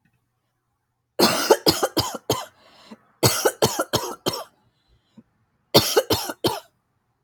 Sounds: Cough